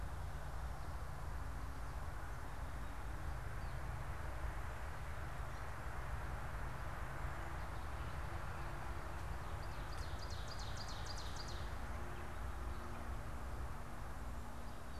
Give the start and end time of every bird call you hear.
9.3s-12.0s: Ovenbird (Seiurus aurocapilla)

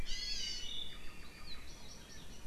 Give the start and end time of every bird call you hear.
0.0s-0.7s: Hawaii Amakihi (Chlorodrepanis virens)
0.9s-1.7s: Apapane (Himatione sanguinea)

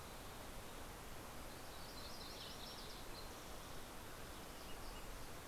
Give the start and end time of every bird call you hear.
0.9s-4.7s: Yellow-rumped Warbler (Setophaga coronata)

